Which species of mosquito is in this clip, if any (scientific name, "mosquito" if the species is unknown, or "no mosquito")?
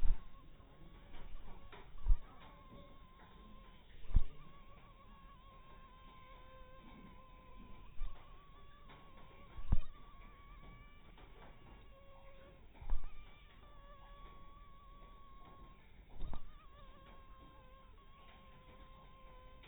mosquito